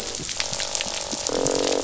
{"label": "biophony, croak", "recorder": "SoundTrap 500"}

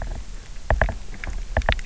{"label": "biophony, knock", "recorder": "SoundTrap 300"}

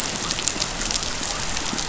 {"label": "biophony", "recorder": "SoundTrap 500"}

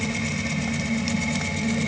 {"label": "anthrophony, boat engine", "recorder": "HydroMoth"}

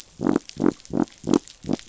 {"label": "biophony", "recorder": "SoundTrap 500"}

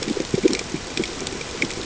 {"label": "ambient", "recorder": "HydroMoth"}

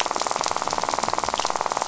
{"label": "biophony, rattle", "recorder": "SoundTrap 500"}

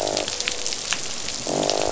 {"label": "biophony, croak", "recorder": "SoundTrap 500"}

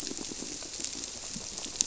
{"label": "biophony, squirrelfish (Holocentrus)", "recorder": "SoundTrap 300"}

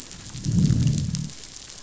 {"label": "biophony, growl", "recorder": "SoundTrap 500"}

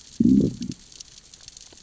{"label": "biophony, growl", "recorder": "SoundTrap 600 or HydroMoth"}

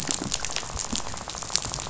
{"label": "biophony, rattle", "recorder": "SoundTrap 500"}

